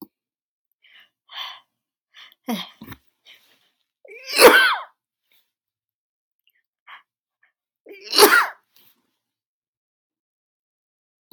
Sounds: Sneeze